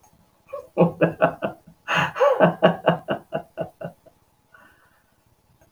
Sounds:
Laughter